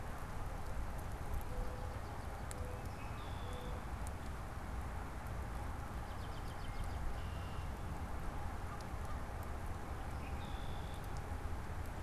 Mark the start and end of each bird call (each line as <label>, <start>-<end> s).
Mourning Dove (Zenaida macroura), 0.0-4.5 s
Red-winged Blackbird (Agelaius phoeniceus), 2.9-3.9 s
American Robin (Turdus migratorius), 5.8-7.1 s
Red-winged Blackbird (Agelaius phoeniceus), 6.6-7.7 s
Red-winged Blackbird (Agelaius phoeniceus), 10.0-11.1 s